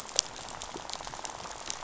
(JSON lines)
{"label": "biophony, rattle", "recorder": "SoundTrap 500"}